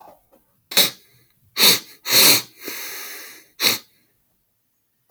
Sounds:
Sniff